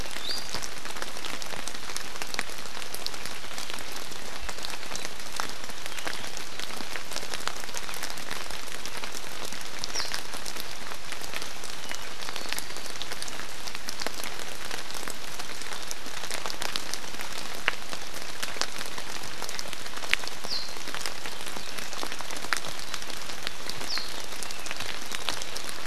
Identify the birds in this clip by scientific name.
Drepanis coccinea, Zosterops japonicus